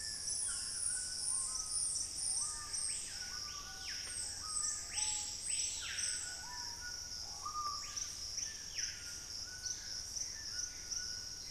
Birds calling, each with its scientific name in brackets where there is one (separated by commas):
Screaming Piha (Lipaugus vociferans), White-throated Toucan (Ramphastos tucanus), unidentified bird, Dusky-throated Antshrike (Thamnomanes ardesiacus), Gray Antbird (Cercomacra cinerascens)